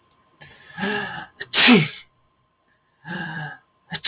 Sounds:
Sneeze